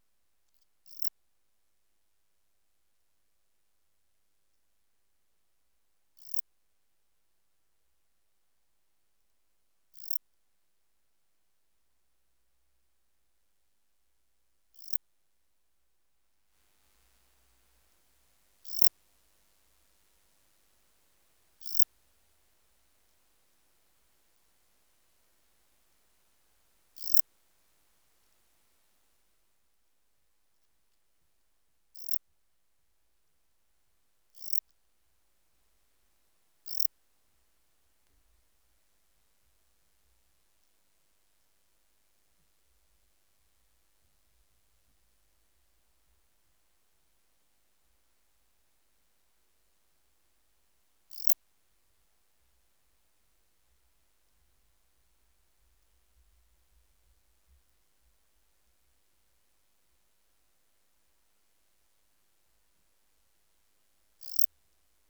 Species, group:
Melanogryllus desertus, Orthoptera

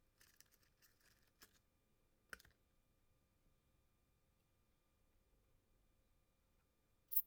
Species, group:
Poecilimon pseudornatus, Orthoptera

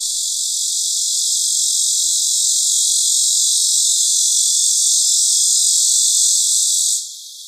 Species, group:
Neotibicen lyricen, Cicadidae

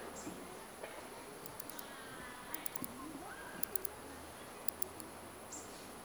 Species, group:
Barbitistes serricauda, Orthoptera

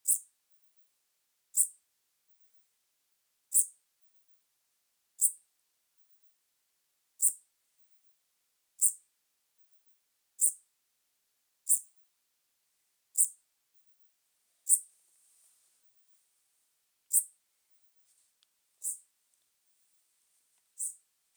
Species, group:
Eupholidoptera megastyla, Orthoptera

